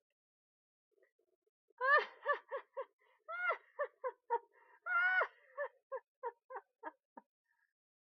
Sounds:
Laughter